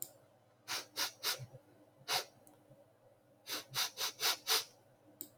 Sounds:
Sniff